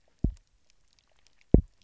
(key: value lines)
label: biophony, double pulse
recorder: SoundTrap 300